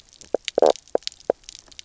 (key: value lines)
label: biophony, knock croak
recorder: SoundTrap 300